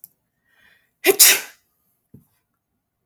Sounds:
Sneeze